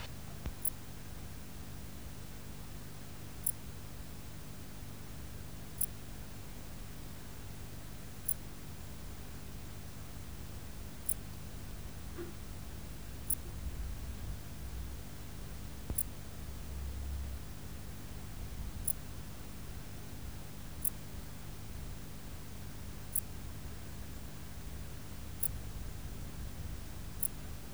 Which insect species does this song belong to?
Pholidoptera griseoaptera